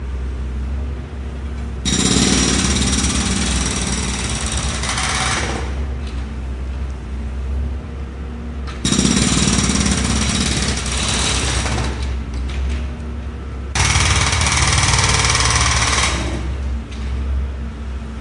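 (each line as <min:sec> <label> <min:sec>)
0:00.0 A jackhammer operating. 0:18.2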